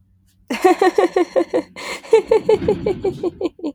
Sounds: Laughter